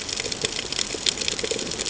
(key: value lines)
label: ambient
recorder: HydroMoth